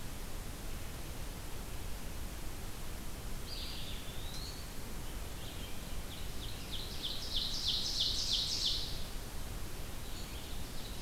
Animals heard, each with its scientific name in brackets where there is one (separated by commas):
Ovenbird (Seiurus aurocapilla), Eastern Wood-Pewee (Contopus virens), Red-eyed Vireo (Vireo olivaceus)